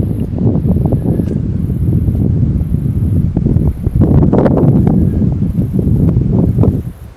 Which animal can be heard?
Telmapsalta hackeri, a cicada